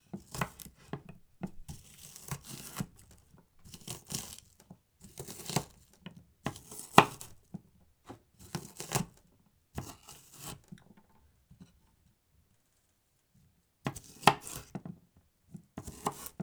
does the person keep cutting the item repeatedly?
yes